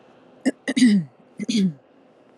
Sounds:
Throat clearing